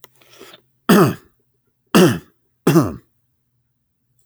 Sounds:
Throat clearing